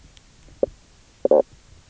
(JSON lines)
{"label": "biophony, knock croak", "recorder": "SoundTrap 300"}